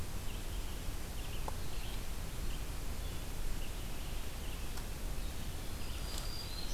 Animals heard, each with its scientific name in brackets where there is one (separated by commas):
Brown Creeper (Certhia americana), Red-eyed Vireo (Vireo olivaceus)